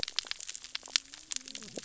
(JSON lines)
{"label": "biophony, cascading saw", "recorder": "SoundTrap 600 or HydroMoth"}